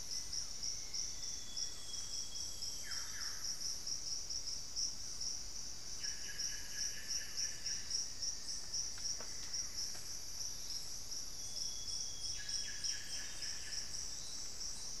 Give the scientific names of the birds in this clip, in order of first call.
Formicarius analis, Cyanoloxia rothschildii, Cacicus solitarius